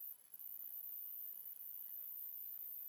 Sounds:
Cough